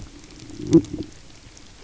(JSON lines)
{"label": "biophony", "recorder": "SoundTrap 300"}